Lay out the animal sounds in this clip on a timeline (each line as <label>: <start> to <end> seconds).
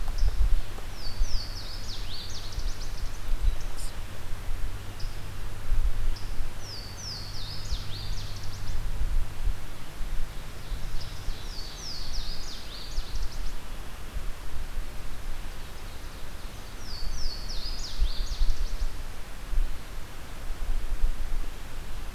Louisiana Waterthrush (Parkesia motacilla): 0.7 to 3.0 seconds
Louisiana Waterthrush (Parkesia motacilla): 6.3 to 9.1 seconds
Ovenbird (Seiurus aurocapilla): 10.2 to 12.3 seconds
Louisiana Waterthrush (Parkesia motacilla): 10.9 to 13.7 seconds
Ovenbird (Seiurus aurocapilla): 15.4 to 16.8 seconds
Louisiana Waterthrush (Parkesia motacilla): 16.6 to 19.2 seconds